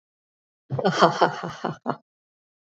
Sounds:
Laughter